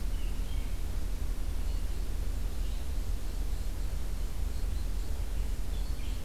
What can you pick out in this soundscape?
Red-eyed Vireo, Black-capped Chickadee